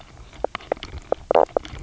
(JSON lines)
{"label": "biophony, knock croak", "recorder": "SoundTrap 300"}